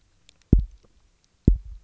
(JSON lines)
{"label": "biophony, double pulse", "recorder": "SoundTrap 300"}